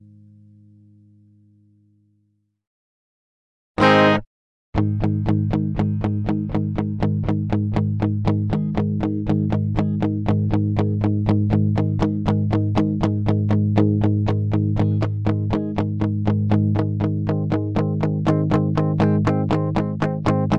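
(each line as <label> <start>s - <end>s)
A guitar is strummed loudly and suddenly. 3.7s - 4.3s
Guitar strumming continuously and rhythmically. 4.7s - 20.6s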